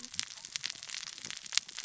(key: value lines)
label: biophony, cascading saw
recorder: SoundTrap 600 or HydroMoth